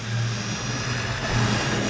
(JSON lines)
{"label": "anthrophony, boat engine", "recorder": "SoundTrap 500"}